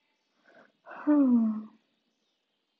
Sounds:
Sigh